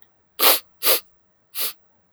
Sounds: Sniff